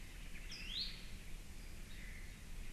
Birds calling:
Iiwi (Drepanis coccinea), Omao (Myadestes obscurus), Apapane (Himatione sanguinea)

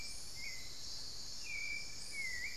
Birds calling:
Hauxwell's Thrush (Turdus hauxwelli), unidentified bird, Elegant Woodcreeper (Xiphorhynchus elegans)

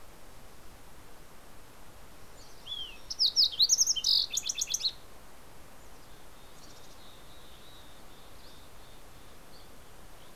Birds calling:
Mountain Chickadee (Poecile gambeli), Fox Sparrow (Passerella iliaca)

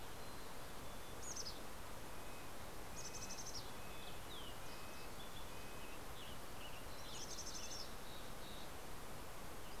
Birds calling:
Mountain Chickadee (Poecile gambeli), Western Tanager (Piranga ludoviciana), Red-breasted Nuthatch (Sitta canadensis)

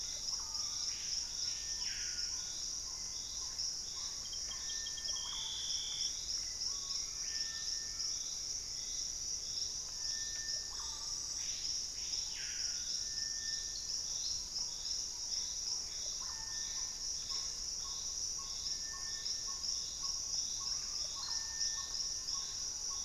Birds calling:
Hauxwell's Thrush (Turdus hauxwelli), Collared Trogon (Trogon collaris), Gray Antbird (Cercomacra cinerascens), Russet-backed Oropendola (Psarocolius angustifrons), Screaming Piha (Lipaugus vociferans), Ringed Woodpecker (Celeus torquatus), Black-tailed Trogon (Trogon melanurus)

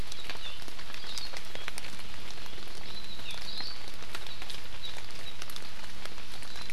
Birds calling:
Hawaii Akepa (Loxops coccineus), Hawaii Amakihi (Chlorodrepanis virens)

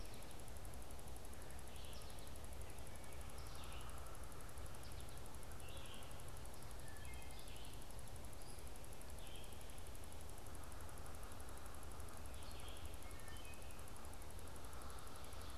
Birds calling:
American Goldfinch (Spinus tristis), Red-eyed Vireo (Vireo olivaceus), Wood Thrush (Hylocichla mustelina)

